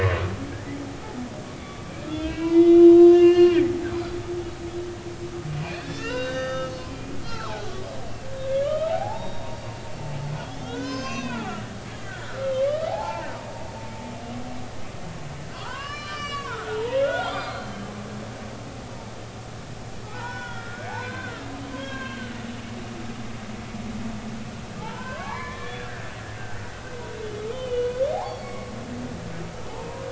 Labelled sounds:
1.6	3.6	humpback whale, 0.93 to 7.5 kHz
3.9	4.2	humpback whale, 3.9 to 4.2 kHz
5.6	7.9	humpback whale, 0.96 to 6.3 kHz
8.4	9.6	humpback whale, 0.80 to 3.8 kHz
10.4	11.5	humpback whale, 0.80 to 6.5 kHz
12.1	12.5	humpback whale, 1.3 to 1.6 kHz
13.0	13.2	humpback whale, 4.2 to 4.5 kHz
13.9	14.3	humpback whale, 0.80 to 1.1 kHz
15.4	17.7	humpback whale, 0.86 to 6.0 kHz
20.1	22.3	humpback whale, 0.80 to 5.5 kHz
24.8	26.7	humpback whale, 0.80 to 2.4 kHz
27.5	28.7	humpback whale, 0.80 to 4.6 kHz
29.7	30.0	humpback whale, 0.80 to 1.1 kHz

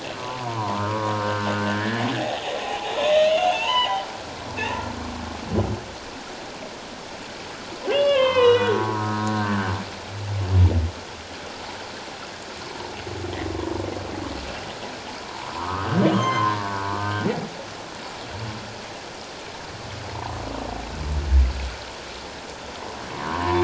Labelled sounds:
0.1	4.0	humpback whale, 0.78 to 4.2 kHz
7.9	9.7	humpback whale, 0.91 to 4.2 kHz
15.3	17.6	humpback whale, 0.78 to 6.4 kHz
23.1	23.6	humpback whale, 0.88 to 1.2 kHz

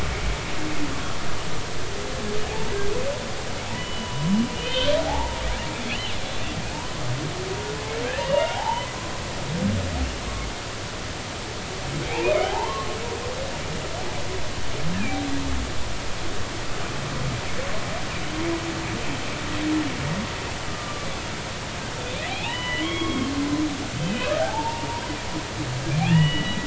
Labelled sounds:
2.5	2.7	humpback whale, 0.80 to 0.96 kHz
3.8	5.4	humpback whale, 0.80 to 3.4 kHz
5.9	6.1	humpback whale, 2.5 to 3.1 kHz
8.2	8.9	humpback whale, 0.80 to 3.1 kHz
12.0	13.0	humpback whale, 0.80 to 2.8 kHz
14.9	15.2	humpback whale, 2.2 to 2.8 kHz
20.7	21.1	humpback whale, 1.1 to 3.0 kHz
22.3	23.3	humpback whale, 0.80 to 3.4 kHz
24.0	24.9	humpback whale, 0.80 to 2.7 kHz
26.0	26.6	humpback whale, 0.80 to 3.0 kHz

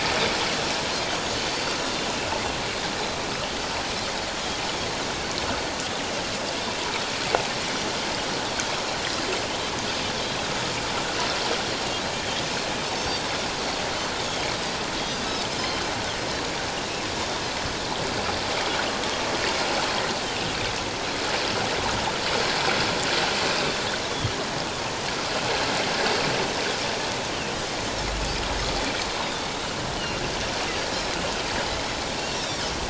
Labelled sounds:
12.9	13.2	Pacific white-sided dolphin, 5.3 to 5.6 kHz
14.2	14.5	Pacific white-sided dolphin, 3.1 to 6.6 kHz
15.6	15.8	Pacific white-sided dolphin, 3.0 to 3.2 kHz
30.0	30.2	Pacific white-sided dolphin, 2.7 to 3.1 kHz
31.8	32.6	Pacific white-sided dolphin, 2.5 to 5.8 kHz

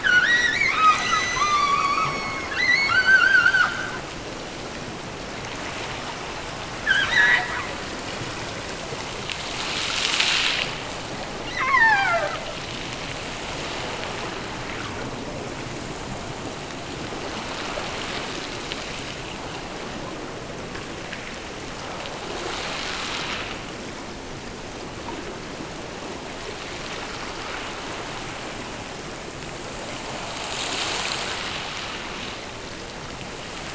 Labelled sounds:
0.0	4.0	killer whale, offshore, 0.75 to 8.0 kHz
6.7	7.7	killer whale, offshore, 0.64 to 6.3 kHz
11.4	12.4	killer whale, offshore, 0.45 to 6.1 kHz

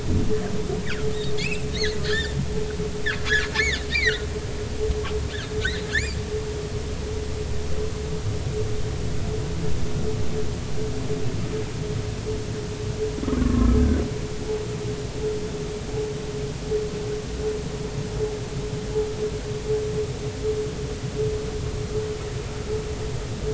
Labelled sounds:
1.4	2.3	humpback whale, 1.4 to 4.5 kHz
3.5	4.3	humpback whale, 1.3 to 4.9 kHz
5.6	6.2	humpback whale, 1.5 to 7.5 kHz
13.2	13.8	humpback whale, 0.99 to 1.4 kHz

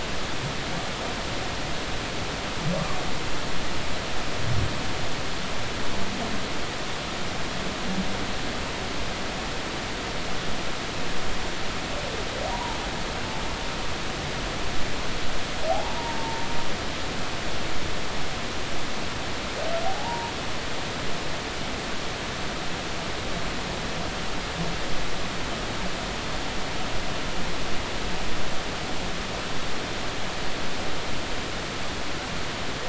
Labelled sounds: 12.5	12.8	humpback whale, 0.86 to 1.0 kHz
15.7	16.5	humpback whale, 0.80 to 0.99 kHz
19.9	20.3	humpback whale, 0.80 to 0.99 kHz

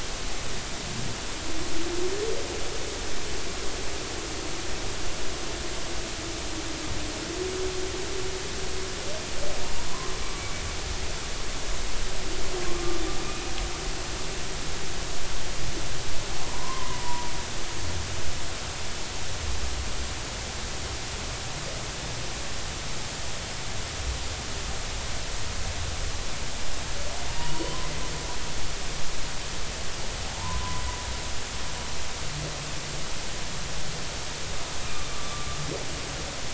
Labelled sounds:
13.2	13.5	humpback whale, 2.4 to 2.5 kHz
16.4	17.3	humpback whale, 0.90 to 1.1 kHz
27.4	27.9	humpback whale, 0.90 to 4.5 kHz
30.4	30.8	humpback whale, 0.86 to 1.1 kHz
35.1	35.5	humpback whale, 1.1 to 1.2 kHz

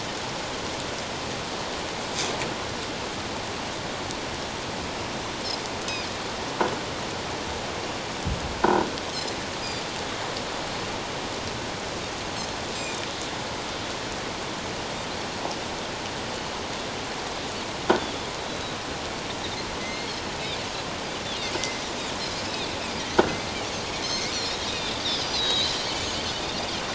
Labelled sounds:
18.0	18.8	Pacific white-sided dolphin, 3.3 to 4.0 kHz
19.8	20.2	Pacific white-sided dolphin, 2.0 to 4.4 kHz
21.6	21.8	Pacific white-sided dolphin, 2.0 to 2.1 kHz
24.0	25.9	Pacific white-sided dolphin, 3.0 to 6.5 kHz

